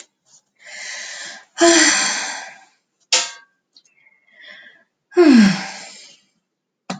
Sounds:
Sigh